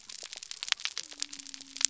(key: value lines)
label: biophony
recorder: SoundTrap 300